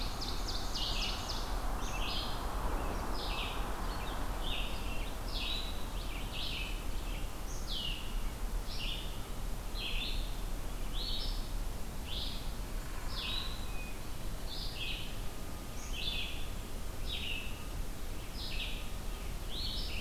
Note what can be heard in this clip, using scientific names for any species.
Seiurus aurocapilla, Vireo olivaceus, Poecile atricapillus